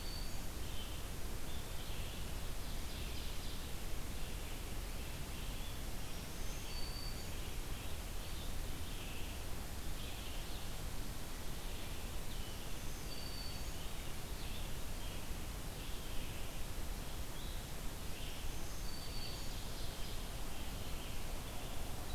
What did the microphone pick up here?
Black-throated Green Warbler, Red-eyed Vireo, Ovenbird